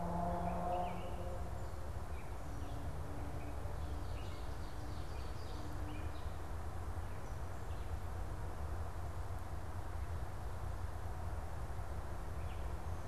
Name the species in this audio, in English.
Gray Catbird, Ovenbird